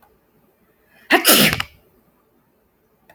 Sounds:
Sneeze